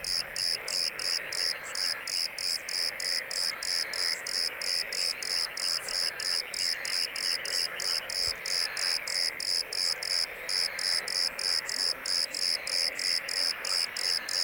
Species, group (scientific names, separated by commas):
Eumodicogryllus bordigalensis, Orthoptera